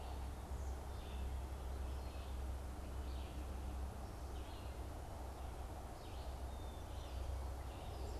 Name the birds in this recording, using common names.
Red-eyed Vireo